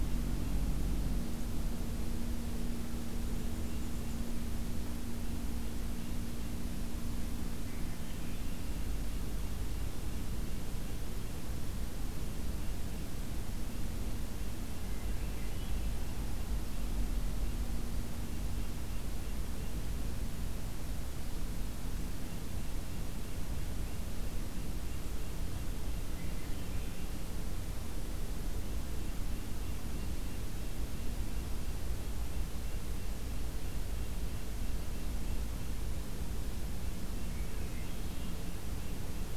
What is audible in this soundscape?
Red-breasted Nuthatch, Black-and-white Warbler, Hermit Thrush, Swainson's Thrush